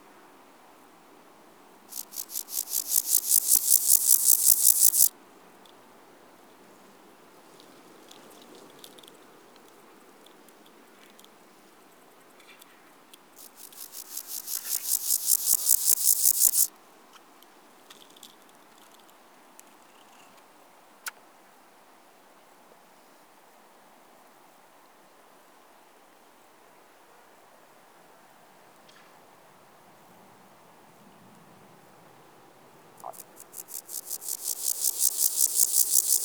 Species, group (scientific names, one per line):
Pseudochorthippus parallelus
Orthoptera